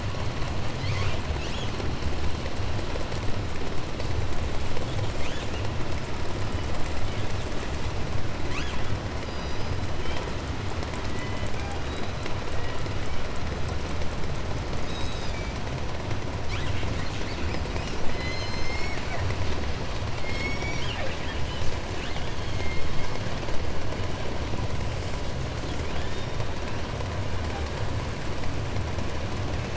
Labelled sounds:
0.7	1.8	killer whale, 0.46 to 8.0 kHz
4.7	5.9	killer whale, 0.99 to 5.1 kHz
6.9	8.0	killer whale, 0.90 to 4.3 kHz
8.4	9.0	killer whale, 0.72 to 8.0 kHz
9.1	10.4	killer whale, southern resident, J pod, call S01, 0.83 to 6.3 kHz
10.9	13.5	killer whale, southern resident, J pod, call S01, 0.67 to 6.6 kHz
14.7	15.7	killer whale, 1.1 to 8.0 kHz
16.4	19.6	killer whale, southern resident, call S10, 0.90 to 8.0 kHz
18.0	19.4	killer whale, southern resident, J pod, call S01, 1.1 to 8.0 kHz
20.0	21.3	killer whale, southern resident, J pod, call S01, 1.6 to 8.0 kHz
20.6	23.1	killer whale, southern resident, call S10, 1.2 to 7.9 kHz
22.1	23.5	killer whale, southern resident, 1.4 to 6.5 kHz
24.5	25.3	killer whale, southern resident, 1.3 to 8.0 kHz
25.6	26.9	killer whale, 0.51 to 8.0 kHz

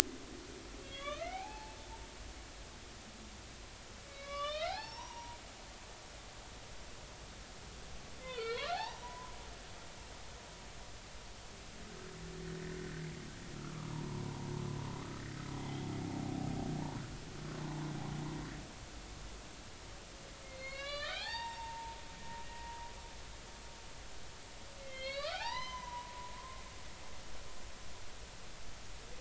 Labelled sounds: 0.8	1.8	humpback whale, 0.80 to 3.7 kHz
4.1	5.4	humpback whale, 0.80 to 6.0 kHz
8.3	9.3	humpback whale, 0.80 to 4.6 kHz
12.4	12.8	humpback whale, 1.7 to 2.0 kHz
13.6	14.2	humpback whale, 0.83 to 1.4 kHz
20.4	22.0	humpback whale, 0.80 to 5.6 kHz
22.5	22.8	humpback whale, 0.93 to 1.9 kHz
24.8	26.6	humpback whale, 0.80 to 6.2 kHz

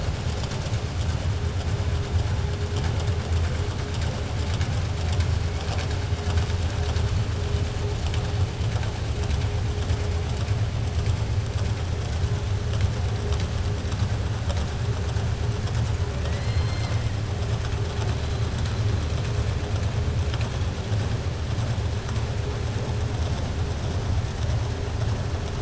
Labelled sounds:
16.2	17.0	killer whale, southern resident, 1.2 to 6.1 kHz

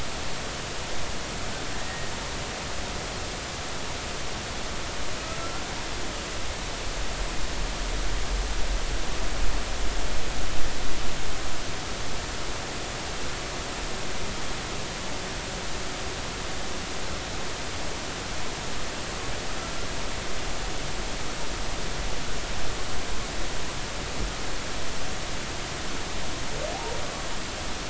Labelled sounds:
5.4	5.6	humpback whale, 1.3 to 1.4 kHz

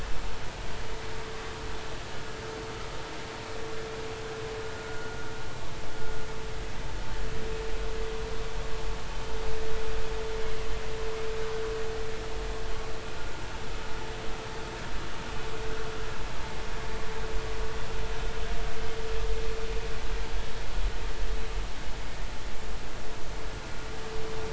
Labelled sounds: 4.8	5.2	vessel noise, 1.4 to 1.5 kHz

